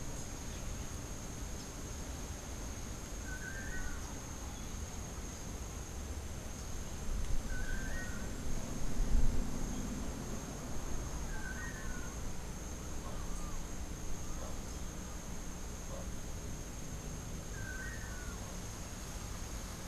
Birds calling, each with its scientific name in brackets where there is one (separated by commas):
Rufous-capped Warbler (Basileuterus rufifrons), Great Kiskadee (Pitangus sulphuratus), Long-tailed Manakin (Chiroxiphia linearis)